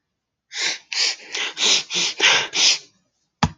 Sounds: Sniff